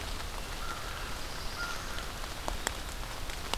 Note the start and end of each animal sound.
[0.47, 2.20] American Crow (Corvus brachyrhynchos)
[0.56, 1.99] Black-throated Blue Warbler (Setophaga caerulescens)

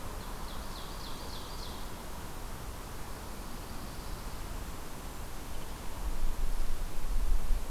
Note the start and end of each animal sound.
[0.00, 1.92] Ovenbird (Seiurus aurocapilla)
[2.95, 4.51] Pine Warbler (Setophaga pinus)

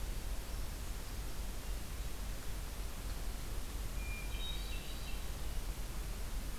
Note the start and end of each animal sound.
[3.83, 5.44] Hermit Thrush (Catharus guttatus)

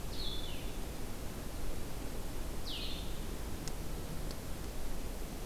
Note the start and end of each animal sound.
[0.00, 5.45] Blue-headed Vireo (Vireo solitarius)

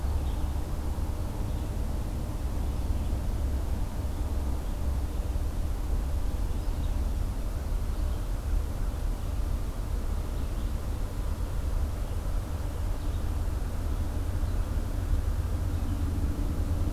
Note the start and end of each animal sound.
[0.00, 16.92] Red-eyed Vireo (Vireo olivaceus)

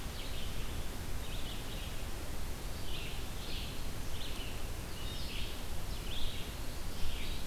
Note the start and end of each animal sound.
[0.00, 7.47] Blue-headed Vireo (Vireo solitarius)

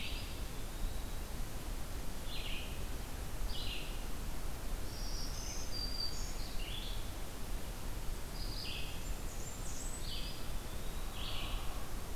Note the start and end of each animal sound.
[0.00, 1.63] Eastern Wood-Pewee (Contopus virens)
[0.00, 11.46] Red-eyed Vireo (Vireo olivaceus)
[4.71, 6.46] Black-throated Green Warbler (Setophaga virens)
[8.86, 10.22] Blackburnian Warbler (Setophaga fusca)
[9.93, 11.32] Eastern Wood-Pewee (Contopus virens)

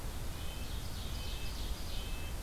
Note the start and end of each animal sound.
[0.17, 2.43] Red-breasted Nuthatch (Sitta canadensis)
[0.25, 2.19] Ovenbird (Seiurus aurocapilla)

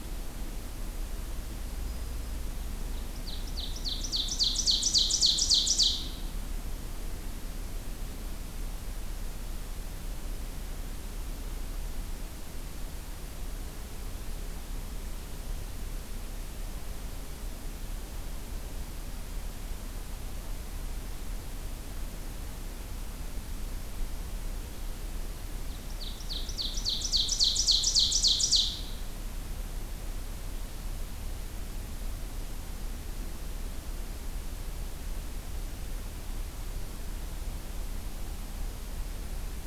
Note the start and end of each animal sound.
[1.66, 2.44] Black-throated Green Warbler (Setophaga virens)
[2.85, 6.32] Ovenbird (Seiurus aurocapilla)
[25.52, 28.86] Ovenbird (Seiurus aurocapilla)

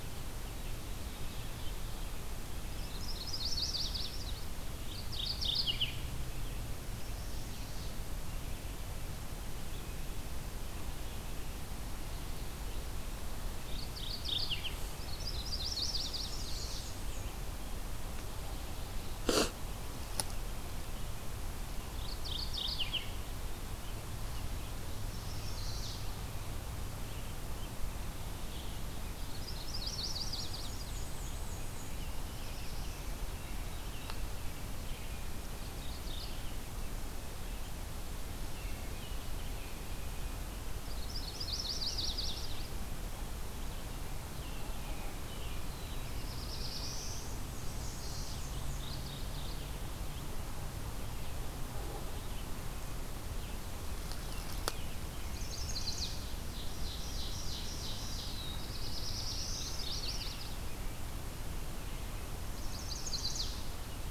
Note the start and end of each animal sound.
[0.77, 2.15] Ovenbird (Seiurus aurocapilla)
[2.78, 4.44] Chestnut-sided Warbler (Setophaga pensylvanica)
[4.83, 6.09] Mourning Warbler (Geothlypis philadelphia)
[6.81, 7.99] Chestnut-sided Warbler (Setophaga pensylvanica)
[13.46, 14.94] Mourning Warbler (Geothlypis philadelphia)
[15.08, 16.91] Chestnut-sided Warbler (Setophaga pensylvanica)
[15.64, 17.29] Black-and-white Warbler (Mniotilta varia)
[21.80, 23.22] Mourning Warbler (Geothlypis philadelphia)
[24.90, 26.17] Chestnut-sided Warbler (Setophaga pensylvanica)
[29.25, 30.84] Chestnut-sided Warbler (Setophaga pensylvanica)
[29.82, 31.98] Black-and-white Warbler (Mniotilta varia)
[31.76, 35.29] American Robin (Turdus migratorius)
[31.82, 33.18] Black-throated Blue Warbler (Setophaga caerulescens)
[35.37, 36.59] Mourning Warbler (Geothlypis philadelphia)
[38.50, 39.97] American Robin (Turdus migratorius)
[40.78, 42.70] Chestnut-sided Warbler (Setophaga pensylvanica)
[44.30, 46.49] American Robin (Turdus migratorius)
[45.90, 47.43] Black-throated Blue Warbler (Setophaga caerulescens)
[47.08, 48.85] Black-and-white Warbler (Mniotilta varia)
[48.71, 49.80] Mourning Warbler (Geothlypis philadelphia)
[54.07, 56.30] American Robin (Turdus migratorius)
[55.14, 56.37] Chestnut-sided Warbler (Setophaga pensylvanica)
[56.38, 58.58] Ovenbird (Seiurus aurocapilla)
[58.32, 59.93] Black-throated Blue Warbler (Setophaga caerulescens)
[59.06, 61.03] American Robin (Turdus migratorius)
[59.47, 60.77] Yellow-rumped Warbler (Setophaga coronata)
[62.19, 63.87] Chestnut-sided Warbler (Setophaga pensylvanica)

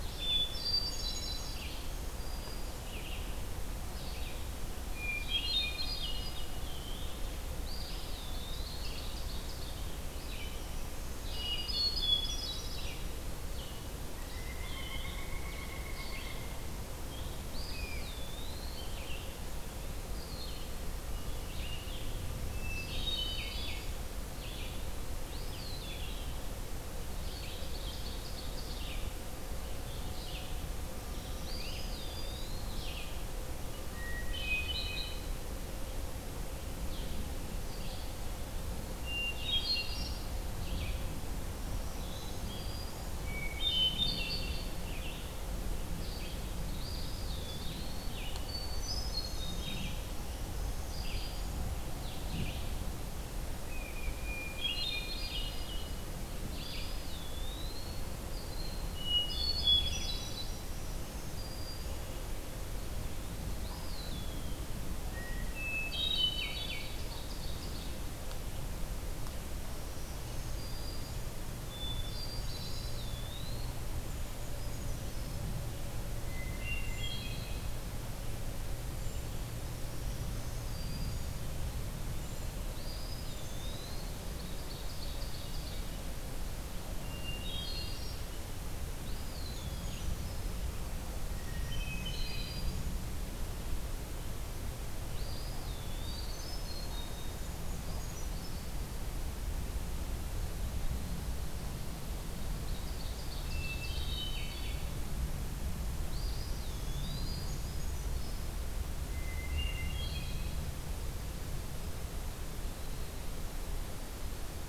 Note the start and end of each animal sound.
[0.00, 20.74] Red-eyed Vireo (Vireo olivaceus)
[0.07, 1.62] Hermit Thrush (Catharus guttatus)
[1.59, 2.92] Black-throated Green Warbler (Setophaga virens)
[4.87, 6.42] Hermit Thrush (Catharus guttatus)
[6.52, 7.22] Eastern Wood-Pewee (Contopus virens)
[7.52, 9.09] Eastern Wood-Pewee (Contopus virens)
[8.42, 9.84] Ovenbird (Seiurus aurocapilla)
[10.36, 11.94] Black-throated Green Warbler (Setophaga virens)
[11.09, 13.08] Hermit Thrush (Catharus guttatus)
[14.18, 16.70] Pileated Woodpecker (Dryocopus pileatus)
[17.30, 19.02] Eastern Wood-Pewee (Contopus virens)
[17.56, 18.13] Great Crested Flycatcher (Myiarchus crinitus)
[21.36, 60.23] Red-eyed Vireo (Vireo olivaceus)
[22.45, 23.99] Black-throated Green Warbler (Setophaga virens)
[22.50, 23.89] Hermit Thrush (Catharus guttatus)
[25.14, 26.50] Eastern Wood-Pewee (Contopus virens)
[27.20, 29.02] Ovenbird (Seiurus aurocapilla)
[31.04, 32.78] Black-throated Green Warbler (Setophaga virens)
[31.23, 32.70] Eastern Wood-Pewee (Contopus virens)
[31.45, 31.92] Great Crested Flycatcher (Myiarchus crinitus)
[33.86, 35.33] Hermit Thrush (Catharus guttatus)
[38.81, 40.33] Hermit Thrush (Catharus guttatus)
[41.53, 43.28] Black-throated Green Warbler (Setophaga virens)
[43.13, 44.81] Hermit Thrush (Catharus guttatus)
[46.55, 48.12] Eastern Wood-Pewee (Contopus virens)
[48.44, 49.96] Hermit Thrush (Catharus guttatus)
[50.12, 51.65] Black-throated Green Warbler (Setophaga virens)
[53.69, 55.68] Hermit Thrush (Catharus guttatus)
[56.33, 58.33] Eastern Wood-Pewee (Contopus virens)
[58.80, 60.57] Hermit Thrush (Catharus guttatus)
[60.21, 62.06] Black-throated Green Warbler (Setophaga virens)
[63.46, 64.66] Eastern Wood-Pewee (Contopus virens)
[65.28, 67.02] Hermit Thrush (Catharus guttatus)
[66.24, 68.07] Ovenbird (Seiurus aurocapilla)
[69.66, 71.40] Black-throated Green Warbler (Setophaga virens)
[71.63, 72.95] Hermit Thrush (Catharus guttatus)
[72.43, 73.83] Eastern Wood-Pewee (Contopus virens)
[74.00, 75.42] Hermit Thrush (Catharus guttatus)
[76.23, 77.86] Hermit Thrush (Catharus guttatus)
[76.82, 79.27] Brown Creeper (Certhia americana)
[79.70, 81.65] Black-throated Green Warbler (Setophaga virens)
[80.91, 83.74] Brown Creeper (Certhia americana)
[82.60, 84.20] Eastern Wood-Pewee (Contopus virens)
[84.39, 86.01] Ovenbird (Seiurus aurocapilla)
[87.04, 88.37] Hermit Thrush (Catharus guttatus)
[88.97, 90.13] Eastern Wood-Pewee (Contopus virens)
[89.01, 90.56] Hermit Thrush (Catharus guttatus)
[91.21, 92.84] Hermit Thrush (Catharus guttatus)
[91.27, 92.95] Black-throated Green Warbler (Setophaga virens)
[94.99, 96.64] Eastern Wood-Pewee (Contopus virens)
[95.97, 97.49] Hermit Thrush (Catharus guttatus)
[97.39, 98.74] Brown Creeper (Certhia americana)
[102.47, 104.17] Ovenbird (Seiurus aurocapilla)
[103.47, 105.03] Hermit Thrush (Catharus guttatus)
[105.97, 107.58] Eastern Wood-Pewee (Contopus virens)
[107.14, 108.61] Hermit Thrush (Catharus guttatus)
[108.87, 110.70] Hermit Thrush (Catharus guttatus)

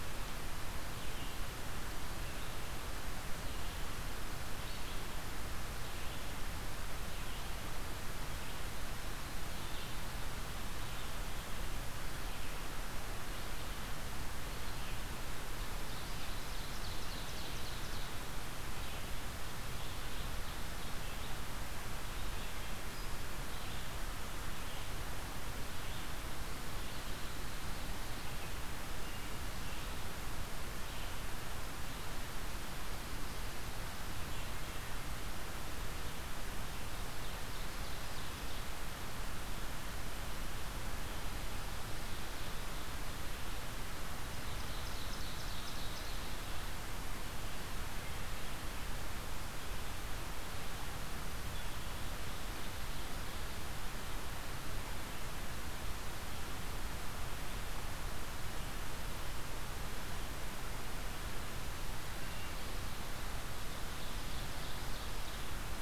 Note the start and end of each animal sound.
[0.00, 27.28] Red-eyed Vireo (Vireo olivaceus)
[16.32, 18.36] Ovenbird (Seiurus aurocapilla)
[19.70, 22.86] American Crow (Corvus brachyrhynchos)
[27.73, 46.81] Red-eyed Vireo (Vireo olivaceus)
[36.47, 38.80] Ovenbird (Seiurus aurocapilla)
[44.26, 46.25] Ovenbird (Seiurus aurocapilla)
[63.46, 65.82] Ovenbird (Seiurus aurocapilla)

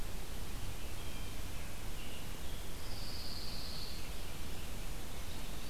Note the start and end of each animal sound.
[0.83, 1.47] Blue Jay (Cyanocitta cristata)
[1.53, 2.42] American Robin (Turdus migratorius)
[2.62, 4.08] Pine Warbler (Setophaga pinus)

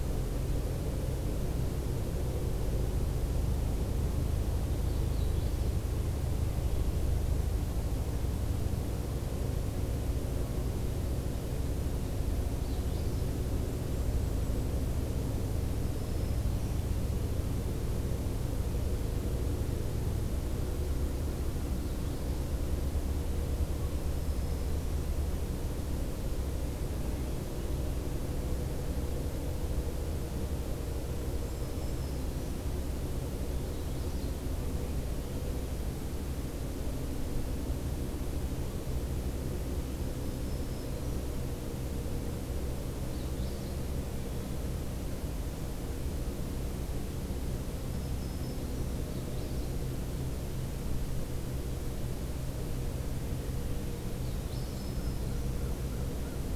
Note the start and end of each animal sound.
[4.58, 5.77] Magnolia Warbler (Setophaga magnolia)
[12.43, 13.40] Magnolia Warbler (Setophaga magnolia)
[13.43, 15.10] Golden-crowned Kinglet (Regulus satrapa)
[15.65, 16.81] Black-throated Green Warbler (Setophaga virens)
[21.67, 22.52] Magnolia Warbler (Setophaga magnolia)
[23.77, 25.08] Black-throated Green Warbler (Setophaga virens)
[31.44, 32.62] Black-throated Green Warbler (Setophaga virens)
[33.43, 34.36] Magnolia Warbler (Setophaga magnolia)
[39.78, 41.32] Black-throated Green Warbler (Setophaga virens)
[42.96, 43.79] Magnolia Warbler (Setophaga magnolia)
[47.80, 48.91] Black-throated Green Warbler (Setophaga virens)
[48.95, 49.83] Magnolia Warbler (Setophaga magnolia)
[54.17, 54.90] Magnolia Warbler (Setophaga magnolia)
[54.56, 55.54] Black-throated Green Warbler (Setophaga virens)

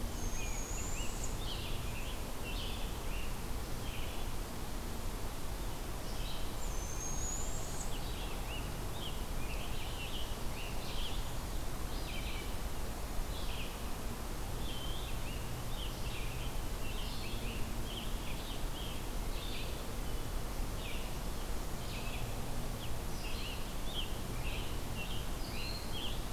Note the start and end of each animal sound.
[0.07, 1.58] Northern Parula (Setophaga americana)
[0.20, 3.56] Scarlet Tanager (Piranga olivacea)
[1.21, 25.98] Red-eyed Vireo (Vireo olivaceus)
[6.42, 8.04] Northern Parula (Setophaga americana)
[7.97, 11.63] Scarlet Tanager (Piranga olivacea)
[14.62, 18.93] Scarlet Tanager (Piranga olivacea)
[22.89, 26.32] Scarlet Tanager (Piranga olivacea)

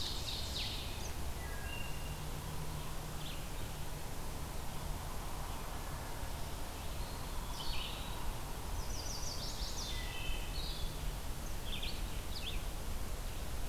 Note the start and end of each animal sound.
[0.00, 1.10] Ovenbird (Seiurus aurocapilla)
[0.00, 13.69] Red-eyed Vireo (Vireo olivaceus)
[1.38, 2.17] Wood Thrush (Hylocichla mustelina)
[6.92, 8.42] Eastern Wood-Pewee (Contopus virens)
[8.58, 10.05] Chestnut-sided Warbler (Setophaga pensylvanica)
[9.70, 10.69] Wood Thrush (Hylocichla mustelina)

